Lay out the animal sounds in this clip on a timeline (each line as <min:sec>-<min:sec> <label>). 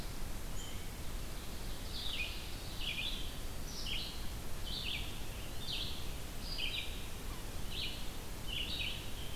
0:00.0-0:09.4 Red-eyed Vireo (Vireo olivaceus)
0:01.2-0:02.9 Ovenbird (Seiurus aurocapilla)